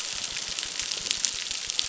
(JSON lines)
{"label": "biophony, crackle", "recorder": "SoundTrap 600"}